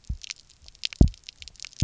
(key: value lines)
label: biophony, double pulse
recorder: SoundTrap 300